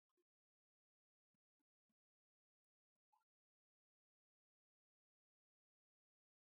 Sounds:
Cough